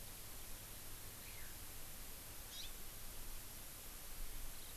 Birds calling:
Eurasian Skylark (Alauda arvensis), Hawaii Amakihi (Chlorodrepanis virens)

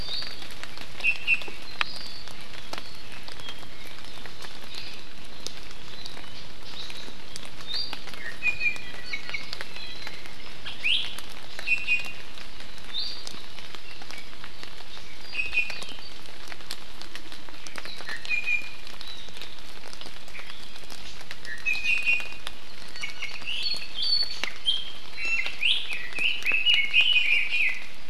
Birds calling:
Iiwi (Drepanis coccinea), Red-billed Leiothrix (Leiothrix lutea)

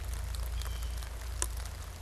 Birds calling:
Blue Jay (Cyanocitta cristata)

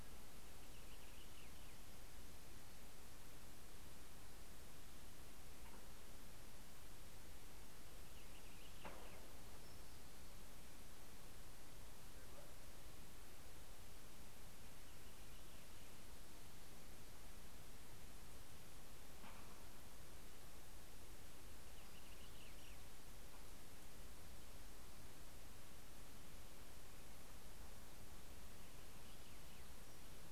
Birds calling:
Purple Finch (Haemorhous purpureus)

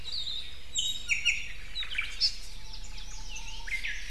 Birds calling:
Omao (Myadestes obscurus), Hawaii Akepa (Loxops coccineus), Iiwi (Drepanis coccinea), Japanese Bush Warbler (Horornis diphone)

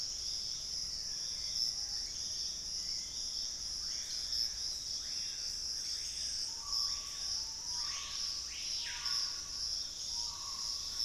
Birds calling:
Screaming Piha (Lipaugus vociferans), Piratic Flycatcher (Legatus leucophaius), Black-faced Antthrush (Formicarius analis), Starred Wood-Quail (Odontophorus stellatus)

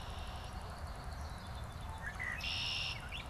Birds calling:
Swamp Sparrow (Melospiza georgiana), Red-winged Blackbird (Agelaius phoeniceus)

